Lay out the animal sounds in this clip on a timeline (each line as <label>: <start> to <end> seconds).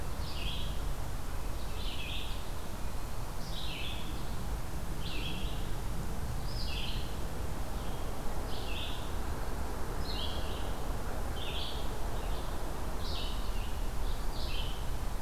Red-eyed Vireo (Vireo olivaceus): 0.0 to 15.2 seconds
Eastern Wood-Pewee (Contopus virens): 8.7 to 9.8 seconds